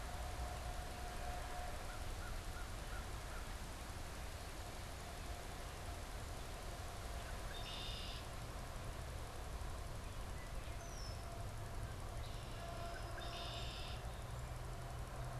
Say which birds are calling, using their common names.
Red-winged Blackbird